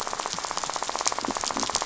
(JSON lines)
{"label": "biophony, rattle", "recorder": "SoundTrap 500"}